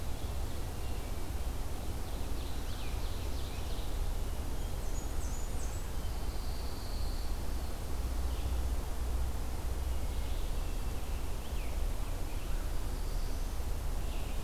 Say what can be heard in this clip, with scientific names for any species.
Vireo olivaceus, Seiurus aurocapilla, Setophaga fusca, Setophaga pinus, Catharus guttatus, Piranga olivacea, Setophaga caerulescens